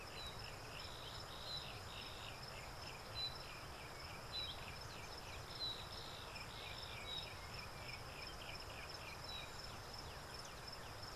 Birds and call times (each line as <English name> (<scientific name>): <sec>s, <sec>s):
Yellow-breasted Apalis (Apalis flavida): 6.6s